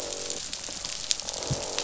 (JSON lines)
{"label": "biophony, croak", "recorder": "SoundTrap 500"}